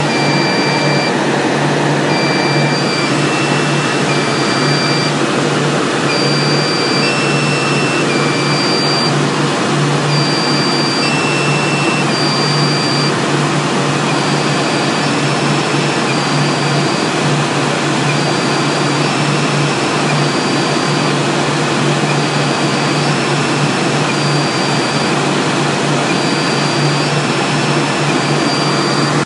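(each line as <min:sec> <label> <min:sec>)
0:00.0 A loud, low-pitched beep from a machine. 0:01.3
0:00.0 Loud continuous ventilation sound. 0:29.3
0:02.0 A machine beeps, cycling from low to high and back to low pitch. 0:05.1
0:05.8 A machine beeps, cycling from low to high and back to low pitch. 0:09.2
0:10.2 A machine beeps, cycling from low to high and back to low pitch. 0:17.5
0:18.2 A machine beeps, cycling from low to high and back to low pitch. 0:29.3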